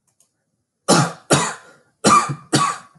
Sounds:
Cough